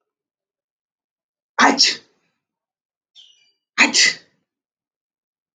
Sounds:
Sneeze